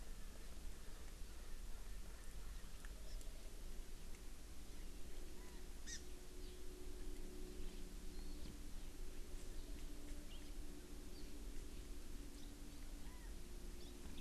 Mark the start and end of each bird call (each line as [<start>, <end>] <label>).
[0.00, 2.70] Erckel's Francolin (Pternistis erckelii)
[5.40, 5.60] Chinese Hwamei (Garrulax canorus)
[5.90, 6.00] Hawaii Amakihi (Chlorodrepanis virens)
[8.10, 8.40] Warbling White-eye (Zosterops japonicus)
[13.00, 13.30] Chinese Hwamei (Garrulax canorus)